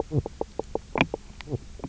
{"label": "biophony, knock croak", "recorder": "SoundTrap 300"}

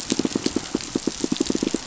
{"label": "biophony, pulse", "recorder": "SoundTrap 500"}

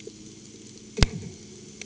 {"label": "anthrophony, bomb", "recorder": "HydroMoth"}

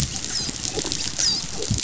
{"label": "biophony, dolphin", "recorder": "SoundTrap 500"}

